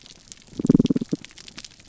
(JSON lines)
{"label": "biophony", "recorder": "SoundTrap 300"}